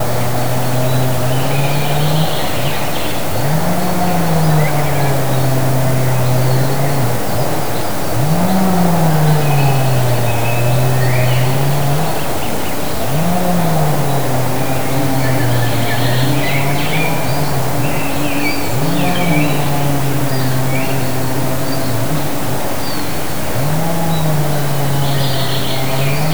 Is someone cutting paper?
no